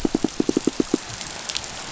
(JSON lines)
{"label": "biophony, pulse", "recorder": "SoundTrap 500"}